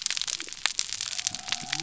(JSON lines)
{"label": "biophony", "recorder": "SoundTrap 300"}